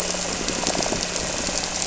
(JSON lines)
{"label": "anthrophony, boat engine", "recorder": "SoundTrap 300"}
{"label": "biophony", "recorder": "SoundTrap 300"}